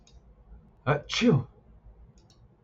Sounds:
Sneeze